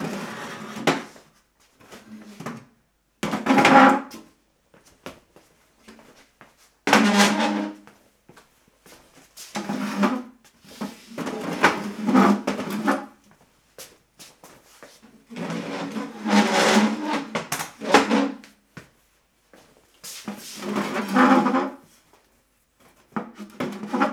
Is this indoors?
yes